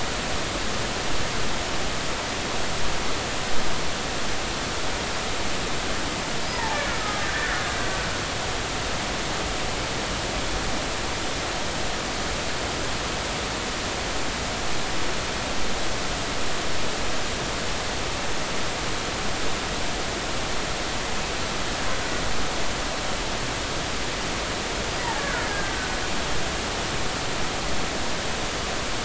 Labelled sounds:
6.5	7.3	killer whale, Bigg's (transient), 0.80 to 1.4 kHz
25.2	26.0	killer whale, Bigg's (transient), 1.3 to 1.8 kHz

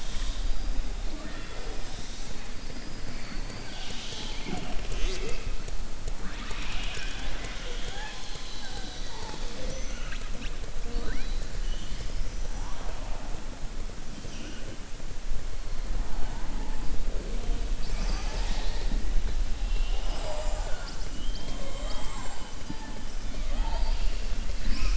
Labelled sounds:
11.6	12.1	killer whale, southern resident, 2.9 to 5.4 kHz

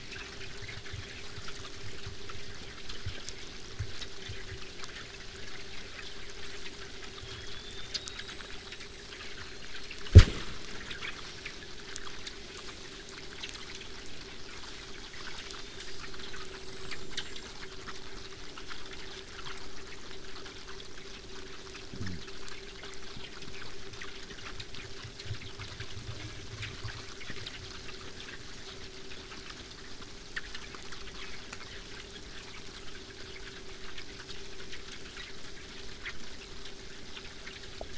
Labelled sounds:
7.2	10.1	killer whale, southern resident, 3.0 to 8.0 kHz
14.8	17.5	killer whale, southern resident, 3.0 to 8.0 kHz
18.8	23.8	vessel noise, 0 to 8.0 kHz
26.0	26.5	killer whale, southern resident, 0.31 to 6.4 kHz

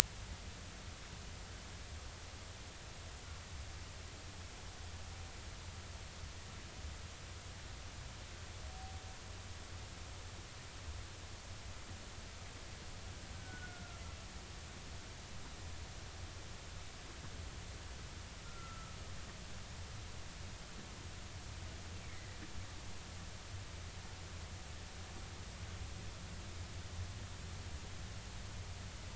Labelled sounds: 13.3	14.0	humpback whale, 1.3 to 1.6 kHz
18.4	19.0	humpback whale, 1.2 to 1.4 kHz

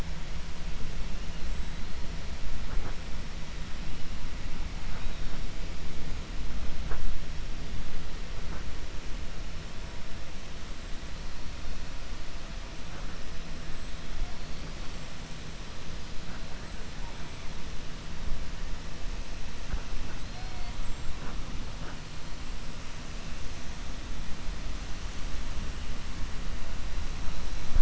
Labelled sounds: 20.2	21.1	killer whale, 3.2 to 8.0 kHz

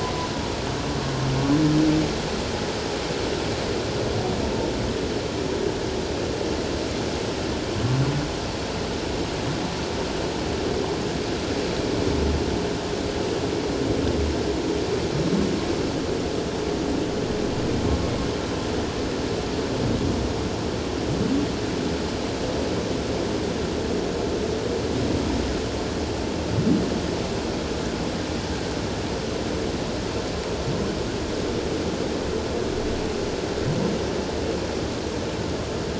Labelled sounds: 0.0	0.3	humpback whale, 0.94 to 1.1 kHz

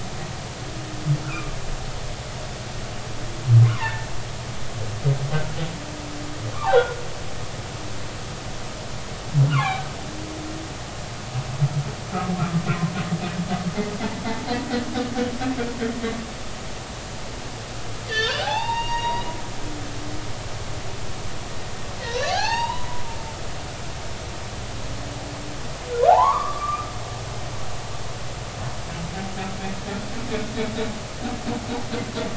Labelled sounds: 1.2	1.5	humpback whale, 1.1 to 1.6 kHz
3.6	4.1	humpback whale, 0.83 to 2.0 kHz
6.5	7.0	humpback whale, 0.80 to 1.6 kHz
9.5	9.9	humpback whale, 0.80 to 1.5 kHz
18.1	19.4	humpback whale, 0.80 to 5.8 kHz
22.0	22.9	humpback whale, 0.80 to 4.8 kHz
23.4	23.7	humpback whale, 5.2 to 5.7 kHz
26.1	26.9	humpback whale, 0.80 to 2.3 kHz

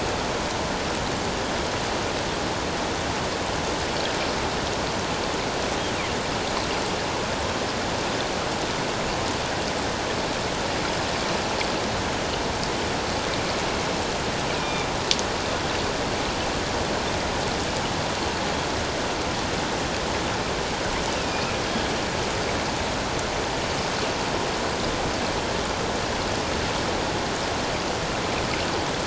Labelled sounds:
14.6	14.9	killer whale, northern resident, 2.3 to 2.5 kHz
21.2	21.6	killer whale, northern resident, 2.4 to 2.8 kHz

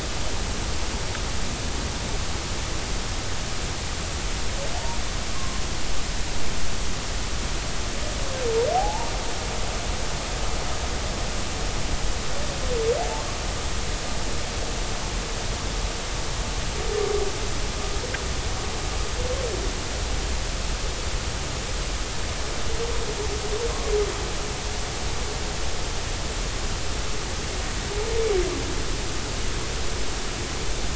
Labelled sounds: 5.3	5.6	humpback whale, 0.99 to 1.1 kHz
8.7	9.1	humpback whale, 0.80 to 0.99 kHz

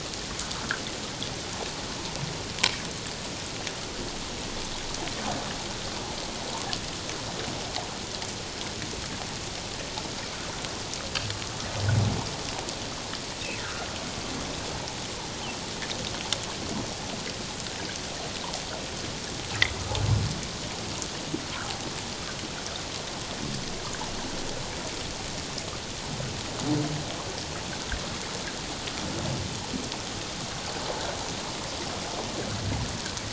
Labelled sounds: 13.6	13.9	humpback whale, 1.2 to 1.7 kHz

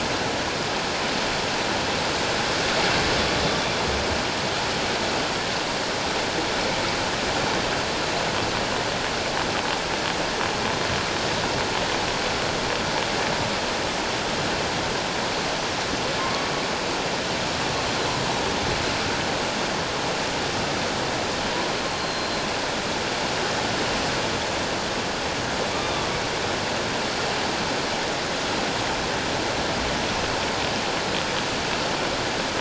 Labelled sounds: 16.2	16.5	humpback whale, 0.91 to 1.2 kHz
21.9	22.5	humpback whale, 4.0 to 4.3 kHz
25.8	26.1	humpback whale, 3.4 to 3.7 kHz

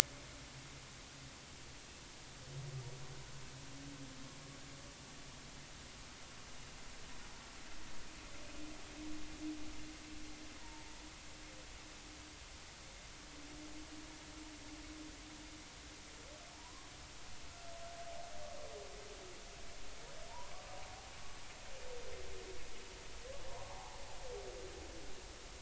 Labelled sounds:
10.6	10.9	humpback whale, 0.86 to 0.99 kHz
16.5	16.9	humpback whale, 0.83 to 1.2 kHz
23.5	24.0	humpback whale, 0.80 to 1.2 kHz

